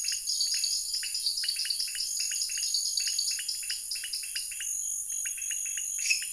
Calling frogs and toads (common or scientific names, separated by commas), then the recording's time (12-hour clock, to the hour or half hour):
dwarf tree frog, pointedbelly frog, lesser tree frog
7:30pm